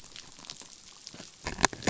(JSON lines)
{"label": "biophony", "recorder": "SoundTrap 500"}